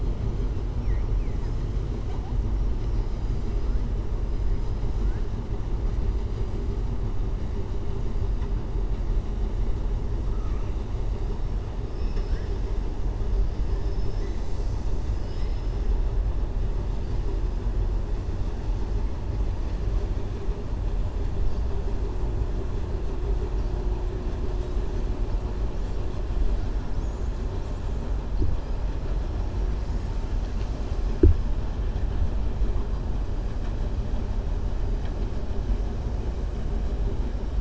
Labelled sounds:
10.3	10.7	killer whale, southern resident, 1.1 to 2.8 kHz
11.8	12.6	killer whale, southern resident, 1.2 to 6.4 kHz

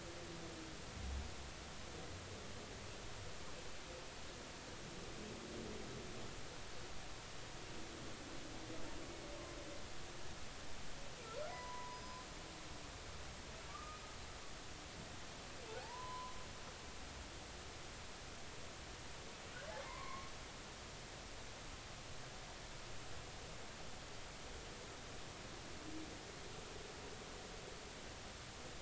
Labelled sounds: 11.5	12.2	humpback whale, 0.90 to 5.1 kHz
13.7	14.0	humpback whale, 1.1 to 1.3 kHz
15.8	16.3	humpback whale, 0.80 to 1.1 kHz
19.8	20.3	humpback whale, 0.86 to 2.3 kHz

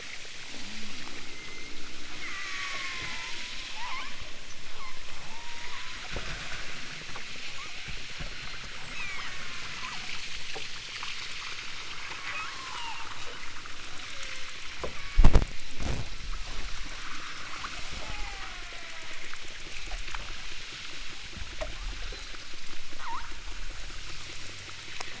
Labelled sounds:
1.3	1.8	killer whale, southern Alaska resident, 1.8 to 6.5 kHz
2.2	4.2	killer whale, southern Alaska resident, 0.60 to 3.1 kHz
4.7	6.0	killer whale, southern Alaska resident, 0.51 to 4.7 kHz
7.5	8.0	killer whale, southern Alaska resident, 0.77 to 3.5 kHz
8.8	10.2	killer whale, southern Alaska resident, 0.81 to 8.0 kHz
12.2	13.0	killer whale, southern Alaska resident, 0.56 to 5.9 kHz
14.0	14.6	killer whale, southern Alaska resident, 0.38 to 2.8 kHz
14.9	15.3	killer whale, southern Alaska resident, 0.85 to 5.2 kHz
16.0	16.5	killer whale, southern Alaska resident, 0.85 to 4.4 kHz
18.0	19.3	killer whale, southern Alaska resident, 0.47 to 3.6 kHz
23.0	23.4	killer whale, southern Alaska resident, 0.64 to 4.4 kHz

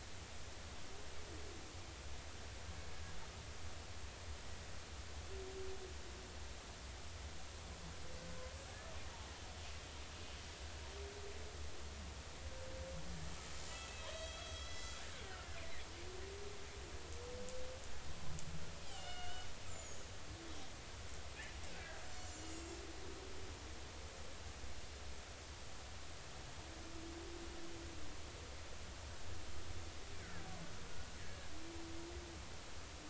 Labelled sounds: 13.7	15.6	killer whale, Bigg's (transient), 1.3 to 6.0 kHz
18.8	20.0	killer whale, Bigg's (transient), 1.4 to 7.6 kHz
22.0	22.8	killer whale, Bigg's (transient), 5.6 to 7.7 kHz
30.2	30.5	killer whale, Bigg's (transient), 1.5 to 2.1 kHz

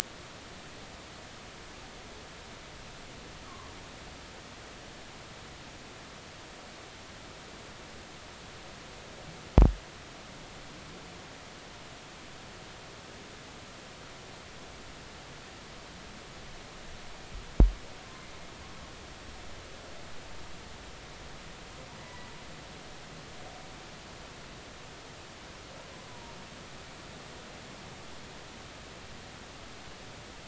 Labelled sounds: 3.5	3.7	humpback whale, 0.93 to 1.2 kHz
22.0	22.3	humpback whale, 1.9 to 2.0 kHz
26.1	26.3	humpback whale, 0.90 to 1.0 kHz

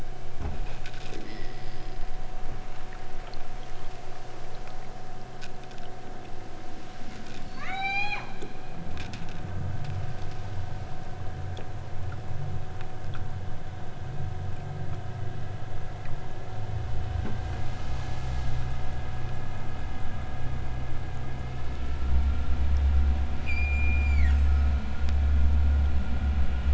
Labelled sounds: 7.5	8.2	killer whale, southern Alaska resident, 0.30 to 8.0 kHz
23.2	25.1	killer whale, southern Alaska resident, 0.95 to 8.0 kHz

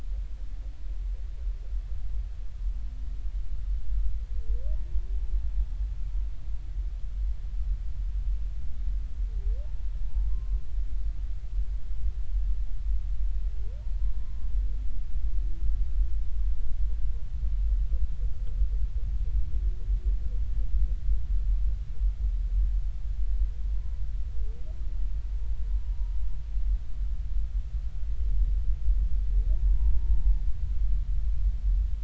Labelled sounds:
10.0	10.6	humpback whale, 0.83 to 1.1 kHz
29.6	30.4	humpback whale, 0.83 to 1.0 kHz

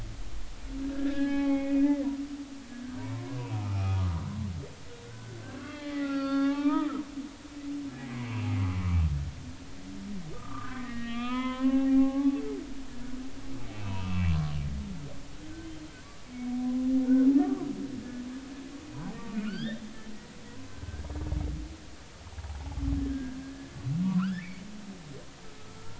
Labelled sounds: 0.9	1.8	humpback whale, 0.80 to 3.4 kHz
3.0	4.3	humpback whale, 0.80 to 2.6 kHz
5.0	7.0	humpback whale, 0.80 to 5.0 kHz
8.1	8.5	humpback whale, 2.1 to 2.8 kHz
10.3	12.4	humpback whale, 0.80 to 3.5 kHz
13.8	14.4	humpback whale, 2.5 to 2.8 kHz
16.3	16.8	humpback whale, 0.96 to 2.3 kHz
19.3	19.8	humpback whale, 1.2 to 3.8 kHz
20.5	20.8	humpback whale, 0.93 to 1.1 kHz
23.0	23.7	humpback whale, 1.5 to 1.8 kHz
24.0	24.6	humpback whale, 0.90 to 2.6 kHz
25.8	25.9	humpback whale, 1.3 to 1.4 kHz

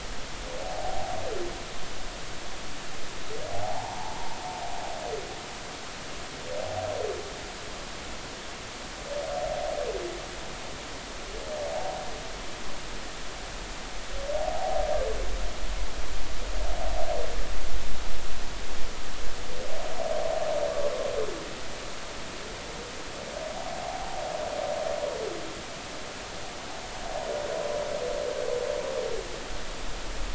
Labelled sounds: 0.7	1.2	humpback whale, 0.80 to 0.90 kHz
3.5	4.4	humpback whale, 0.80 to 1.1 kHz
11.7	12.0	humpback whale, 0.80 to 0.93 kHz
14.4	14.8	humpback whale, 0.80 to 0.93 kHz
23.8	24.2	humpback whale, 0.80 to 0.93 kHz

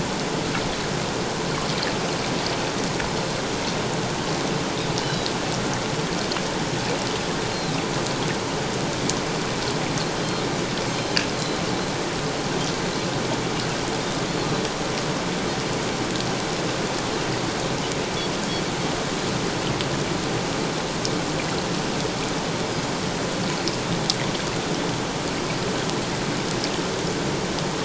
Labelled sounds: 5.0	5.3	Pacific white-sided dolphin, 2.8 to 4.1 kHz
10.9	11.2	Pacific white-sided dolphin, 4.1 to 4.2 kHz

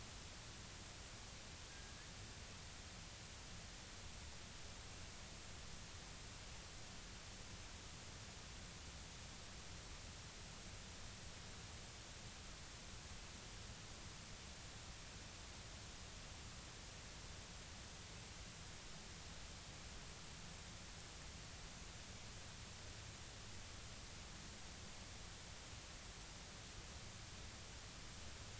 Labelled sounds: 1.7	1.9	killer whale, northern resident, G clan, 1.6 to 1.7 kHz

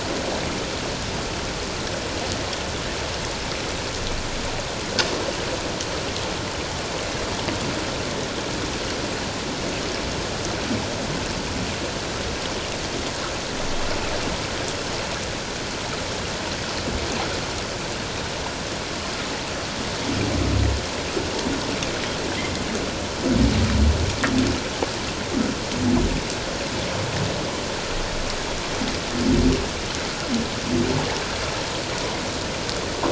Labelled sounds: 22.4	22.6	humpback whale, 1.9 to 2.2 kHz

